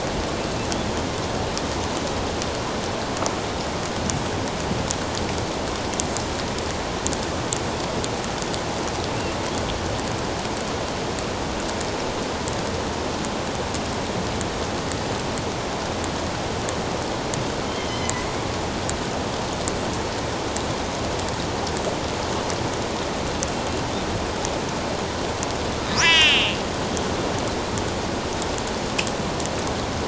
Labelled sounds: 17.9	18.3	killer whale, northern resident, A clan, AB subclan, 1.9 to 3.2 kHz
26.0	26.6	killer whale, northern resident, A clan, AB subclan, 1.5 to 6.0 kHz

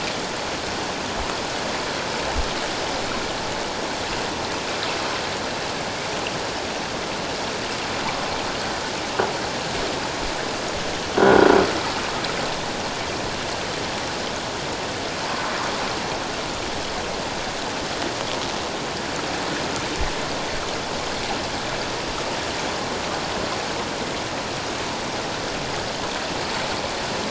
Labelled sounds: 11.2	11.5	croaking sound likely from a nearby submerged object, 1.4 to 1.6 kHz

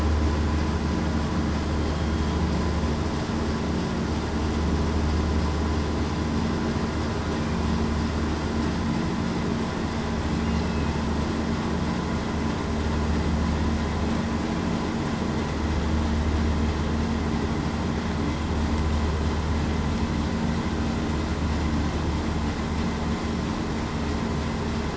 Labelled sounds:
10.6	10.9	killer whale, southern resident, 2.5 to 2.7 kHz

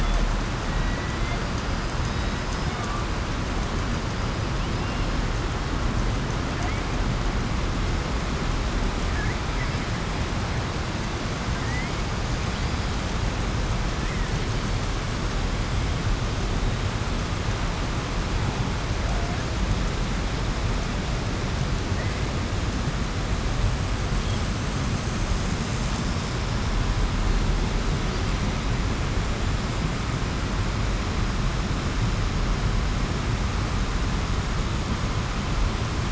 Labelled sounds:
0.7	1.4	killer whale, southern resident, 1.6 to 2.2 kHz

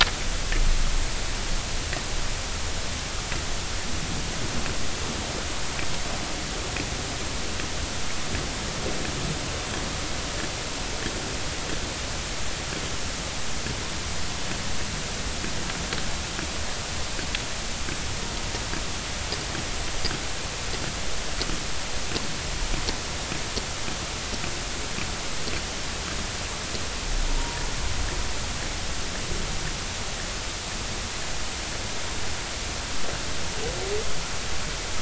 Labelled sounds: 27.3	27.6	humpback whale, 0.86 to 1.0 kHz

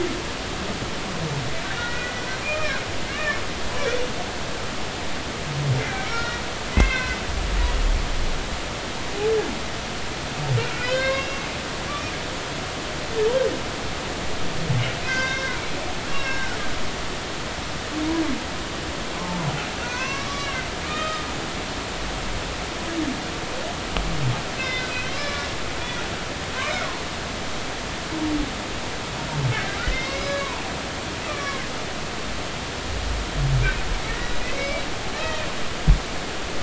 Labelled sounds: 1.7	2.1	humpback whale, 1.4 to 2.0 kHz
2.4	3.4	humpback whale, 1.4 to 2.5 kHz
5.8	6.4	humpback whale, 1.3 to 4.3 kHz
6.7	7.2	humpback whale, 1.4 to 2.7 kHz
10.7	11.4	humpback whale, 0.99 to 6.0 kHz
11.9	12.1	humpback whale, 2.3 to 2.5 kHz
15.0	15.6	humpback whale, 1.5 to 5.9 kHz
16.1	16.6	humpback whale, 1.3 to 2.8 kHz
19.8	21.3	humpback whale, 0.96 to 6.0 kHz
24.6	25.5	humpback whale, 1.1 to 5.3 kHz
26.6	26.9	humpback whale, 2.0 to 2.4 kHz
29.9	30.6	humpback whale, 0.86 to 5.1 kHz
34.1	34.3	humpback whale, 1.8 to 2.0 kHz
35.6	35.8	humpback whale, 2.2 to 2.4 kHz

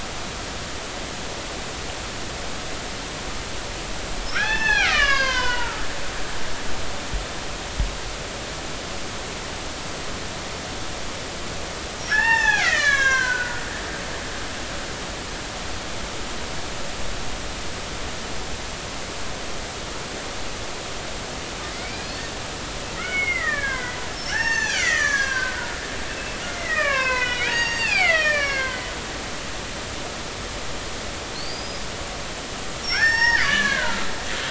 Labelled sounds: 4.3	5.9	killer whale, Bigg's (transient), 0.80 to 6.8 kHz
12.1	14.4	killer whale, Bigg's (transient), 0.80 to 7.3 kHz
21.7	22.3	killer whale, Bigg's (transient), 2.0 to 4.6 kHz
22.9	28.9	killer whale, Bigg's (transient), 0.80 to 7.3 kHz
31.3	31.8	killer whale, Bigg's (transient), 4.1 to 5.2 kHz
32.8	34.1	killer whale, Bigg's (transient), 0.83 to 5.8 kHz

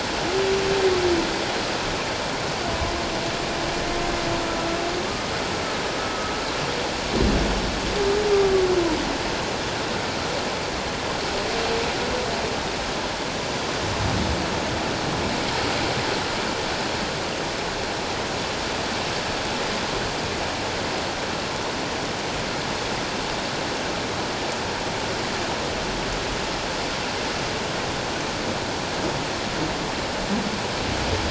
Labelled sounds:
6.0	6.3	humpback whale, 1.2 to 1.3 kHz

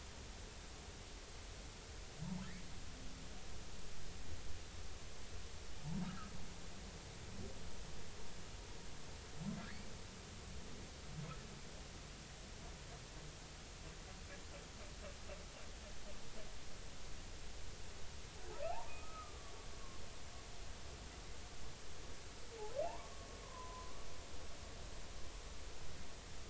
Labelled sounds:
6.0	6.3	humpback whale, 1.2 to 1.4 kHz
18.9	19.5	humpback whale, 1.1 to 1.3 kHz
22.8	23.9	humpback whale, 0.80 to 1.2 kHz

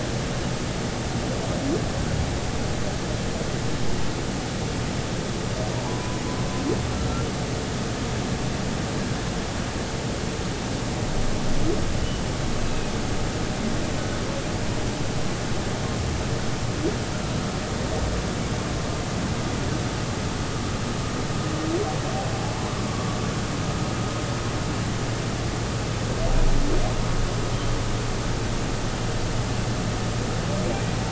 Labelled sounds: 5.8	6.2	humpback whale, 0.80 to 1.1 kHz
6.9	7.3	humpback whale, 1.3 to 1.4 kHz
12.0	12.9	humpback whale, 2.5 to 3.0 kHz

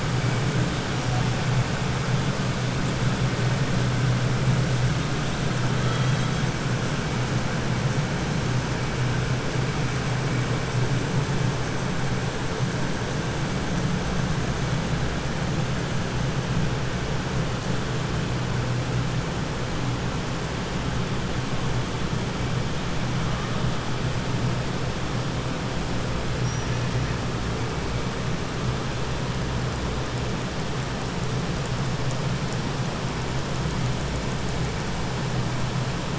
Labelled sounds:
5.8	6.4	killer whale, 1.3 to 5.2 kHz

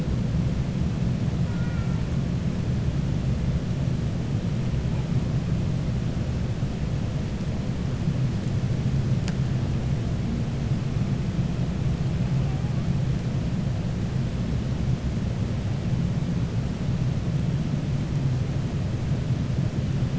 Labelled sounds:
1.4	2.0	killer whale, 0.91 to 2.4 kHz

